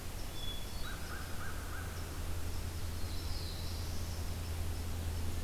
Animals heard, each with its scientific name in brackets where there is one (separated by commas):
Hermit Thrush (Catharus guttatus), American Crow (Corvus brachyrhynchos), Black-throated Blue Warbler (Setophaga caerulescens)